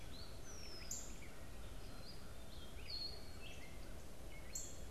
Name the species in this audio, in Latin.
Dumetella carolinensis, Cardinalis cardinalis, Agelaius phoeniceus, Poecile atricapillus